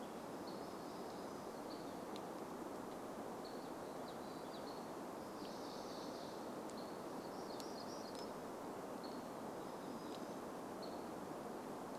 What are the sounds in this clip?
Hammond's Flycatcher call, warbler song